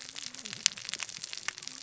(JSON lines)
{"label": "biophony, cascading saw", "recorder": "SoundTrap 600 or HydroMoth"}